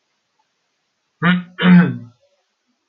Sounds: Throat clearing